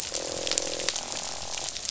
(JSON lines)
{"label": "biophony, croak", "recorder": "SoundTrap 500"}